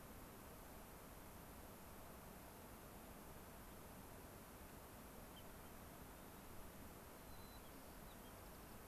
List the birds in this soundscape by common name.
White-crowned Sparrow